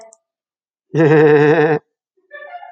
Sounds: Laughter